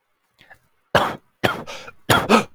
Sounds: Cough